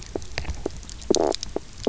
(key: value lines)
label: biophony, knock croak
recorder: SoundTrap 300